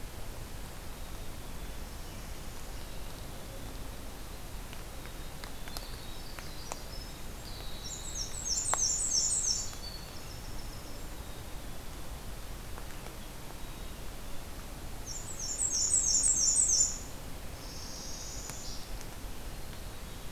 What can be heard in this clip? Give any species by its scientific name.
Poecile atricapillus, Setophaga americana, Troglodytes hiemalis, Mniotilta varia